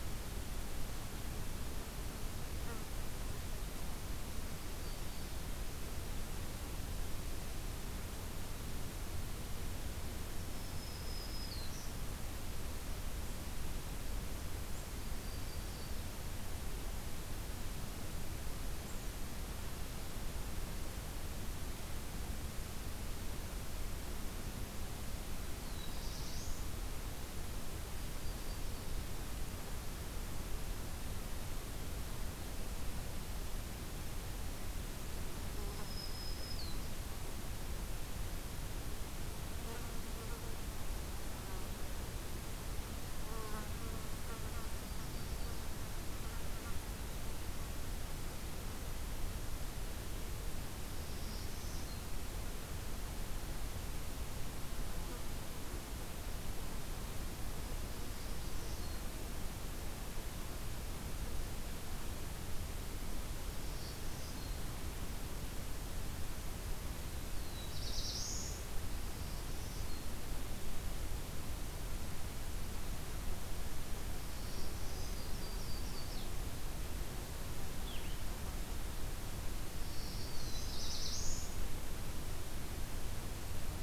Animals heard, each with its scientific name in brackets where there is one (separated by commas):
unidentified call, Black-throated Blue Warbler (Setophaga caerulescens), Black-throated Green Warbler (Setophaga virens), Yellow-rumped Warbler (Setophaga coronata)